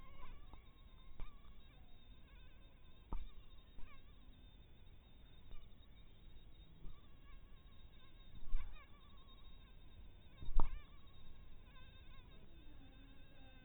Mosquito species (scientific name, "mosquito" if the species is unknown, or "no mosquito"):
mosquito